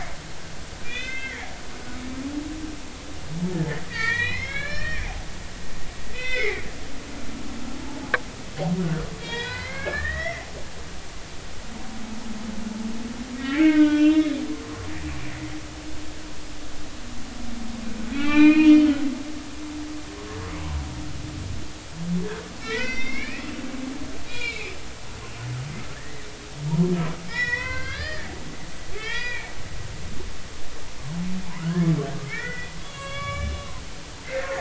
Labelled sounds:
0.8	1.5	humpback whale, 1.5 to 3.7 kHz
3.9	5.1	humpback whale, 1.5 to 5.6 kHz
6.1	6.7	humpback whale, 1.4 to 5.4 kHz
9.1	10.5	humpback whale, 0.90 to 4.9 kHz
13.4	14.4	humpback whale, 1.2 to 3.9 kHz
14.6	14.9	humpback whale, 0.99 to 1.2 kHz
18.1	18.8	humpback whale, 0.83 to 4.1 kHz
22.6	23.4	humpback whale, 1.4 to 5.9 kHz
24.3	24.7	humpback whale, 1.4 to 3.5 kHz
25.9	26.3	humpback whale, 1.5 to 2.1 kHz
27.3	28.3	humpback whale, 0.93 to 5.6 kHz
28.9	30.5	humpback whale, 0.83 to 4.0 kHz
31.6	34.6	humpback whale, 1.1 to 8.0 kHz

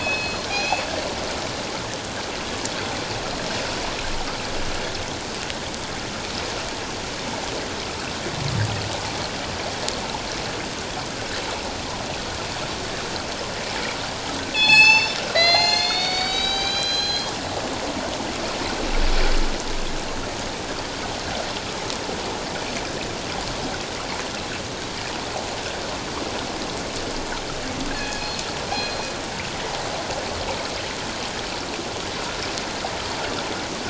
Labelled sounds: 0.0	0.9	killer whale, northern resident, G clan, call N24ii, 2.4 to 7.0 kHz
14.5	17.3	killer whale, northern resident, G clan, call N24ii, 0.78 to 8.0 kHz
27.9	28.3	killer whale, northern resident, G clan, call N24ii, 1.5 to 2.6 kHz
28.7	29.1	killer whale, northern resident, G clan, call N24ii, 2.3 to 4.2 kHz

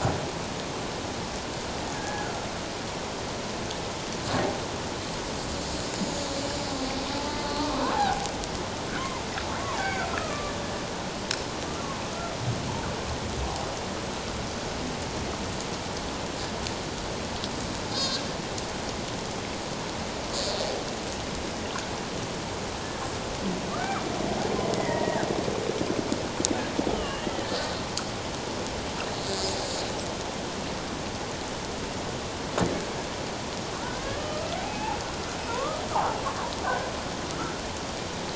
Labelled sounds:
2.0	2.3	killer whale, 1.6 to 1.8 kHz
5.5	5.9	killer whale, Bigg's (transient), 4.1 to 4.8 kHz
7.1	8.3	killer whale, Bigg's (transient), 0.78 to 4.3 kHz
9.0	10.5	killer whale, Bigg's (transient), 0.78 to 2.3 kHz
17.9	18.2	killer whale, Bigg's (transient), 1.5 to 3.9 kHz
23.7	24.0	killer whale, Bigg's (transient), 1.1 to 1.6 kHz
24.7	25.3	killer whale, Bigg's (transient), 0.91 to 2.1 kHz
26.9	27.5	killer whale, Bigg's (transient), 1.1 to 3.2 kHz
34.2	35.0	killer whale, Bigg's (transient), 0.78 to 2.8 kHz
35.5	35.8	killer whale, Bigg's (transient), 0.88 to 1.3 kHz

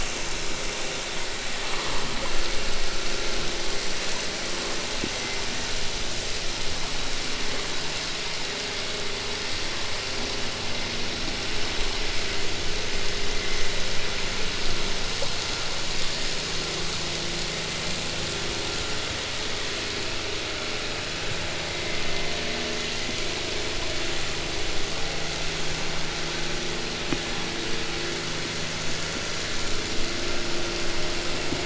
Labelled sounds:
12.1	14.0	vessel noise, 1.5 to 2.8 kHz
21.3	22.6	vessel noise, 1.7 to 2.7 kHz

